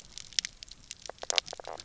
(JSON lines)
{"label": "biophony, knock croak", "recorder": "SoundTrap 300"}